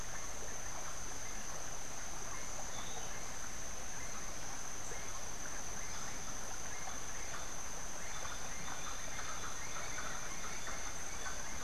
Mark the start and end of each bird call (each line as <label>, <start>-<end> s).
Gray-headed Chachalaca (Ortalis cinereiceps), 7.6-11.6 s